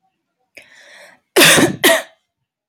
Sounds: Cough